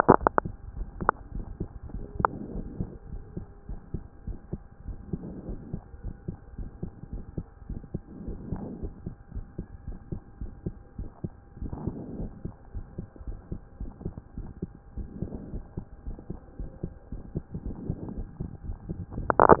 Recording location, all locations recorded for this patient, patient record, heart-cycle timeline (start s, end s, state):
pulmonary valve (PV)
aortic valve (AV)+pulmonary valve (PV)+tricuspid valve (TV)+tricuspid valve (TV)+mitral valve (MV)
#Age: Child
#Sex: Female
#Height: 135.0 cm
#Weight: 33.5 kg
#Pregnancy status: False
#Murmur: Absent
#Murmur locations: nan
#Most audible location: nan
#Systolic murmur timing: nan
#Systolic murmur shape: nan
#Systolic murmur grading: nan
#Systolic murmur pitch: nan
#Systolic murmur quality: nan
#Diastolic murmur timing: nan
#Diastolic murmur shape: nan
#Diastolic murmur grading: nan
#Diastolic murmur pitch: nan
#Diastolic murmur quality: nan
#Outcome: Normal
#Campaign: 2014 screening campaign
0.00	2.54	unannotated
2.54	2.66	S1
2.66	2.78	systole
2.78	2.88	S2
2.88	3.12	diastole
3.12	3.22	S1
3.22	3.36	systole
3.36	3.46	S2
3.46	3.68	diastole
3.68	3.80	S1
3.80	3.92	systole
3.92	4.02	S2
4.02	4.26	diastole
4.26	4.38	S1
4.38	4.52	systole
4.52	4.60	S2
4.60	4.86	diastole
4.86	4.98	S1
4.98	5.12	systole
5.12	5.20	S2
5.20	5.46	diastole
5.46	5.58	S1
5.58	5.72	systole
5.72	5.82	S2
5.82	6.04	diastole
6.04	6.14	S1
6.14	6.28	systole
6.28	6.36	S2
6.36	6.58	diastole
6.58	6.70	S1
6.70	6.82	systole
6.82	6.92	S2
6.92	7.12	diastole
7.12	7.24	S1
7.24	7.36	systole
7.36	7.46	S2
7.46	7.68	diastole
7.68	7.80	S1
7.80	7.92	systole
7.92	8.02	S2
8.02	8.26	diastole
8.26	8.38	S1
8.38	8.50	systole
8.50	8.62	S2
8.62	8.80	diastole
8.80	8.92	S1
8.92	9.06	systole
9.06	9.14	S2
9.14	9.34	diastole
9.34	9.46	S1
9.46	9.58	systole
9.58	9.66	S2
9.66	9.86	diastole
9.86	9.98	S1
9.98	10.10	systole
10.10	10.20	S2
10.20	10.40	diastole
10.40	10.52	S1
10.52	10.64	systole
10.64	10.74	S2
10.74	10.98	diastole
10.98	11.08	S1
11.08	11.22	systole
11.22	11.32	S2
11.32	11.60	diastole
11.60	11.72	S1
11.72	11.84	systole
11.84	11.96	S2
11.96	12.18	diastole
12.18	12.30	S1
12.30	12.44	systole
12.44	12.54	S2
12.54	12.74	diastole
12.74	12.86	S1
12.86	12.98	systole
12.98	13.06	S2
13.06	13.26	diastole
13.26	13.38	S1
13.38	13.50	systole
13.50	13.60	S2
13.60	13.80	diastole
13.80	13.92	S1
13.92	14.04	systole
14.04	14.14	S2
14.14	14.36	diastole
14.36	14.48	S1
14.48	14.62	systole
14.62	14.70	S2
14.70	14.96	diastole
14.96	15.08	S1
15.08	15.20	systole
15.20	15.30	S2
15.30	15.52	diastole
15.52	15.64	S1
15.64	15.76	systole
15.76	15.84	S2
15.84	16.06	diastole
16.06	16.16	S1
16.16	16.30	systole
16.30	16.38	S2
16.38	16.58	diastole
16.58	16.70	S1
16.70	16.82	systole
16.82	16.92	S2
16.92	17.12	diastole
17.12	19.60	unannotated